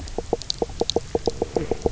{"label": "biophony, knock croak", "recorder": "SoundTrap 300"}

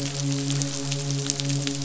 {"label": "biophony, midshipman", "recorder": "SoundTrap 500"}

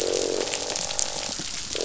{"label": "biophony, croak", "recorder": "SoundTrap 500"}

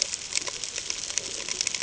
{"label": "ambient", "recorder": "HydroMoth"}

